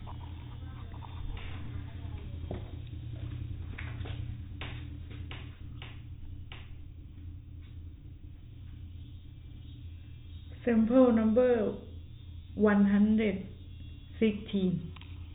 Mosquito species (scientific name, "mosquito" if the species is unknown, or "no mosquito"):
no mosquito